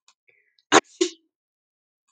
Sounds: Sneeze